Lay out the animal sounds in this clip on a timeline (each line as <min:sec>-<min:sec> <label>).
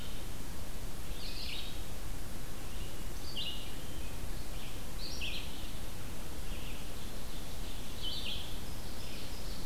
0:00.0-0:09.7 Red-eyed Vireo (Vireo olivaceus)
0:06.7-0:09.7 Ovenbird (Seiurus aurocapilla)